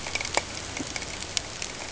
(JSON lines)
{"label": "ambient", "recorder": "HydroMoth"}